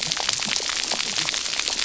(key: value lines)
label: biophony, cascading saw
recorder: SoundTrap 300